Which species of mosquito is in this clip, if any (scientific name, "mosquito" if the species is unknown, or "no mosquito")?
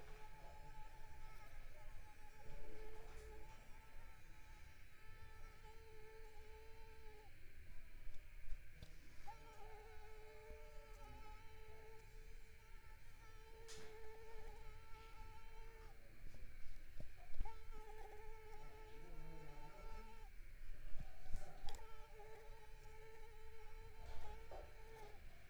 Mansonia uniformis